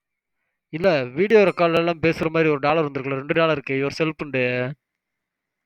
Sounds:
Sniff